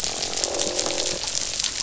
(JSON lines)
{"label": "biophony, croak", "recorder": "SoundTrap 500"}